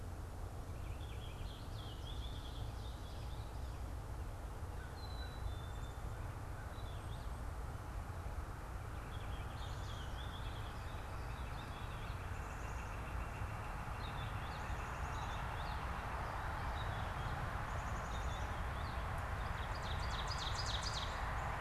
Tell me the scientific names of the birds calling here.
Haemorhous purpureus, Corvus brachyrhynchos, Poecile atricapillus, Colaptes auratus, Seiurus aurocapilla, Cardinalis cardinalis